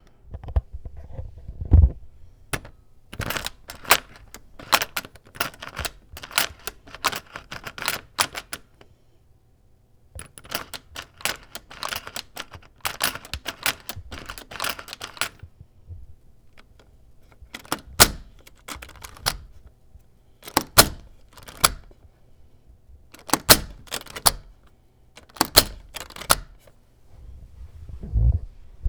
Is the noise repeated?
yes